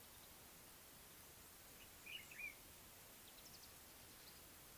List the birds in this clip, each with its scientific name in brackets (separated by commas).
Common Bulbul (Pycnonotus barbatus)